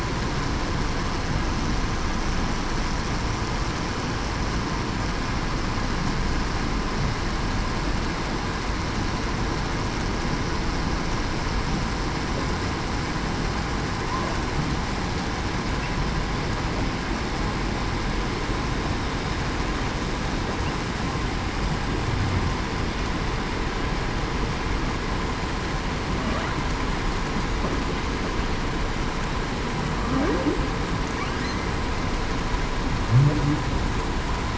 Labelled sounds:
30.0	30.5	humpback whale, 0.21 to 0.54 kHz

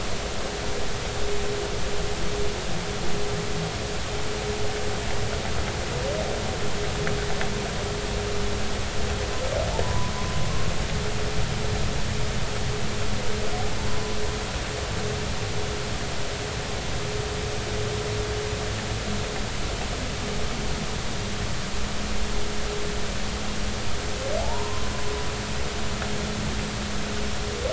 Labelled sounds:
9.8	10.1	humpback whale, 0.93 to 1.1 kHz
13.9	14.2	humpback whale, 0.96 to 1.1 kHz
24.4	24.9	humpback whale, 0.80 to 1.1 kHz

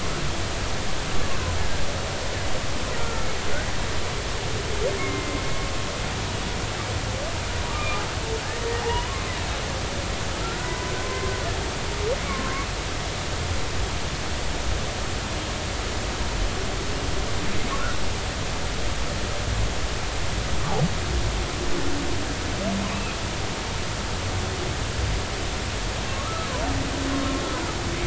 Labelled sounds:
3.0	3.3	humpback whale, 1.3 to 1.4 kHz
5.0	5.4	humpback whale, 1.0 to 2.2 kHz
7.7	8.0	humpback whale, 2.3 to 2.5 kHz
8.8	9.3	humpback whale, 0.80 to 1.2 kHz
10.6	11.3	humpback whale, 0.96 to 1.1 kHz
12.3	12.7	humpback whale, 1.0 to 1.2 kHz
22.9	23.2	humpback whale, 2.4 to 2.8 kHz
26.1	26.5	humpback whale, 1.1 to 1.4 kHz

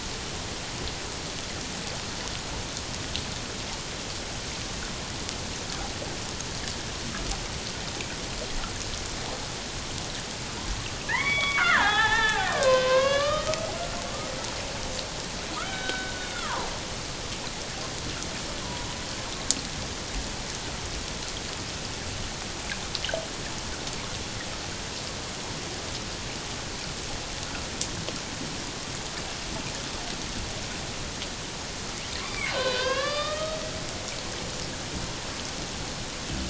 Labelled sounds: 11.1	13.5	killer whale, Bigg's (transient), 0.78 to 5.0 kHz
15.6	16.7	killer whale, Bigg's (transient), 0.84 to 3.8 kHz
18.6	18.9	killer whale, Bigg's (transient), 0.91 to 1.1 kHz
32.2	33.6	killer whale, Bigg's (transient), 0.97 to 4.9 kHz

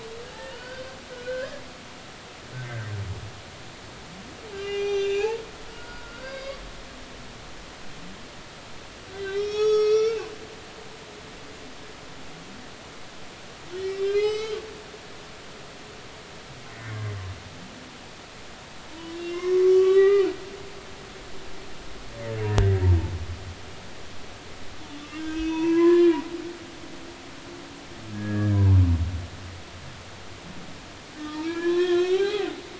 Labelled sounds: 0.4	1.6	humpback whale, 1.4 to 4.8 kHz
2.5	2.9	humpback whale, 1.5 to 1.7 kHz
4.5	6.6	humpback whale, 0.80 to 7.0 kHz
9.1	10.3	humpback whale, 1.2 to 6.6 kHz
13.7	14.6	humpback whale, 1.2 to 7.9 kHz
18.9	20.3	humpback whale, 0.90 to 4.0 kHz
22.5	22.8	humpback whale, 1.5 to 2.0 kHz
25.2	26.2	humpback whale, 0.90 to 5.9 kHz
28.1	28.8	humpback whale, 0.83 to 1.8 kHz
31.2	32.5	humpback whale, 0.80 to 3.6 kHz

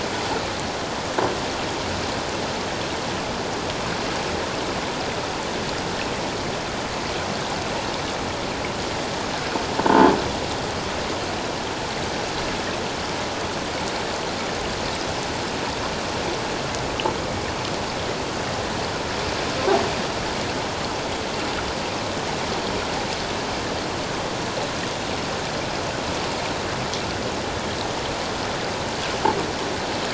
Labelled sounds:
9.9	10.1	croaking sound likely from a nearby submerged object, 0.84 to 1.2 kHz

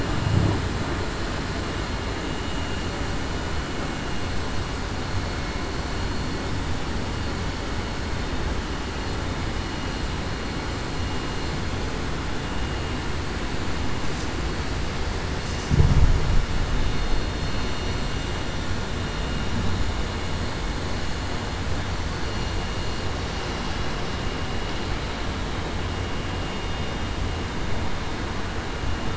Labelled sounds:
16.9	17.3	vessel noise, 4.26 to 4.31 kHz

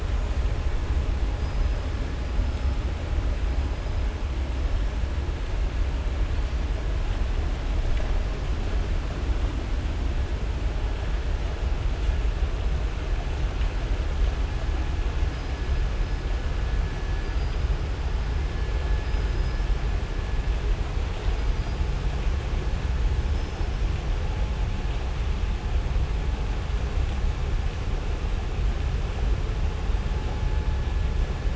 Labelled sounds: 1.3	1.8	killer whale, southern resident, 4.8 to 5.1 kHz
23.3	23.7	killer whale, southern resident, 4.6 to 6.2 kHz

